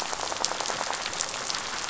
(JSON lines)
{"label": "biophony, rattle", "recorder": "SoundTrap 500"}